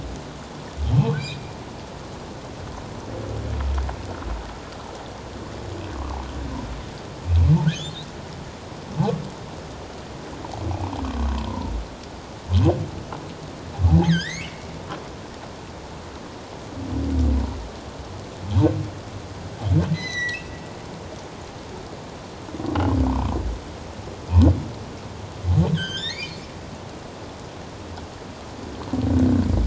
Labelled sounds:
1.2	1.5	humpback whale, 2.2 to 2.7 kHz
7.7	8.1	humpback whale, 2.9 to 4.2 kHz
11.5	11.7	humpback whale, 0.88 to 1.1 kHz
14.0	14.7	humpback whale, 1.4 to 4.6 kHz
19.9	20.4	humpback whale, 1.8 to 8.0 kHz
23.1	23.3	humpback whale, 0.84 to 1.2 kHz
25.7	26.5	humpback whale, 1.4 to 7.4 kHz

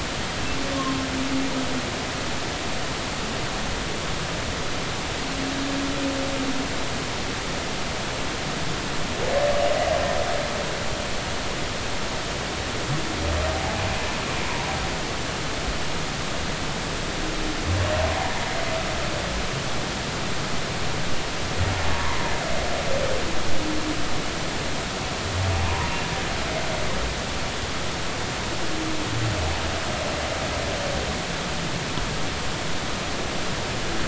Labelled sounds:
0.7	1.0	humpback whale, 0.99 to 1.1 kHz
13.5	13.9	humpback whale, 0.80 to 0.90 kHz
21.9	22.2	humpback whale, 0.90 to 1.2 kHz
25.6	25.9	humpback whale, 0.86 to 1.1 kHz

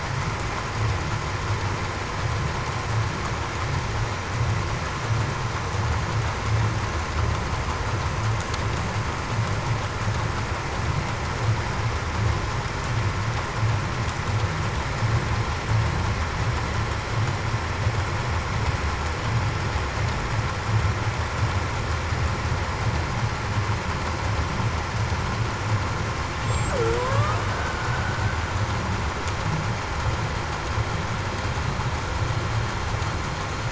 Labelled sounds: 26.7	27.3	killer whale, Bigg's (transient), 0.42 to 0.63 kHz

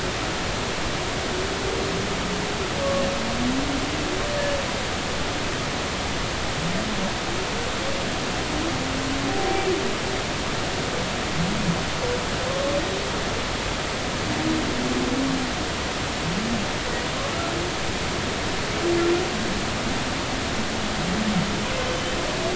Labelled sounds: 9.3	9.7	humpback whale, 0.80 to 0.83 kHz
12.5	12.7	humpback whale, 1.0 to 1.2 kHz
21.8	22.1	humpback whale, 2.9 to 3.1 kHz

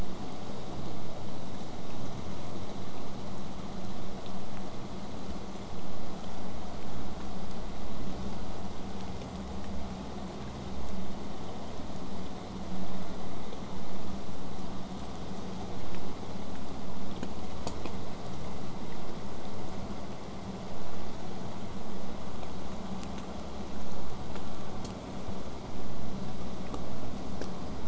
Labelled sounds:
9.8	16.1	killer whale, 6.9 to 8.0 kHz

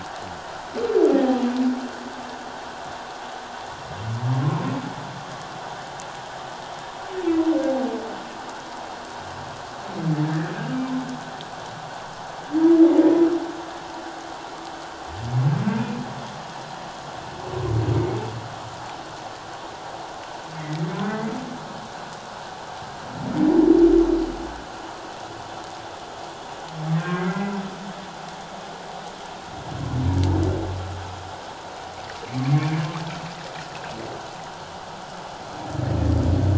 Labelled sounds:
10.2	10.5	humpback whale, 1.6 to 1.9 kHz
15.7	16.0	humpback whale, 2.4 to 2.5 kHz
21.1	21.3	humpback whale, 1.9 to 2.1 kHz
27.0	27.5	humpback whale, 1.5 to 2.1 kHz

